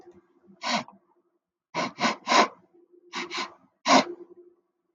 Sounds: Sniff